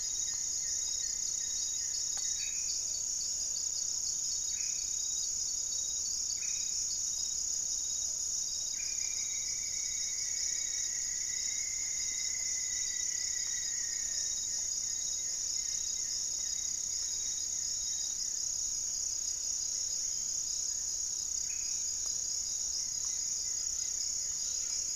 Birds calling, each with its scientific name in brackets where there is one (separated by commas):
Black-faced Antthrush (Formicarius analis), Plumbeous Pigeon (Patagioenas plumbea), Rufous-fronted Antthrush (Formicarius rufifrons), unidentified bird, Buff-breasted Wren (Cantorchilus leucotis), Goeldi's Antbird (Akletos goeldii), Gray-fronted Dove (Leptotila rufaxilla)